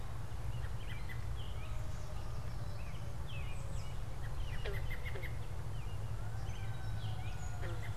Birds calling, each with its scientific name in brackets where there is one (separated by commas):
American Robin (Turdus migratorius)